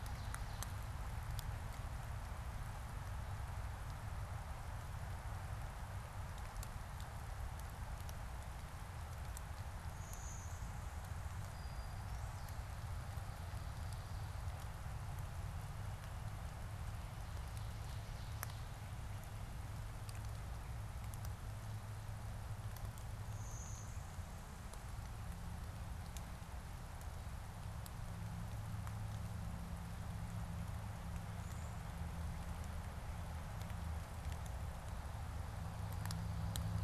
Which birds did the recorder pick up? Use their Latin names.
Seiurus aurocapilla, Vermivora cyanoptera, Molothrus ater